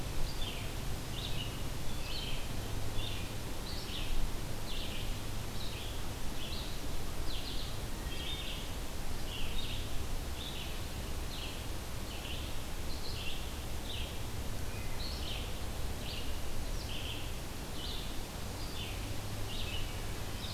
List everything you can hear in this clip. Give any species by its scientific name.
Vireo olivaceus, Hylocichla mustelina